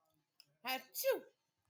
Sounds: Sneeze